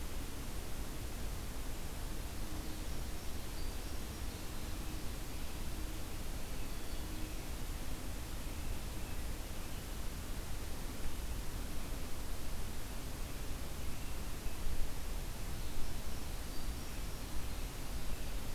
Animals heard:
forest ambience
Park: Marsh-Billings-Rockefeller National Historical Park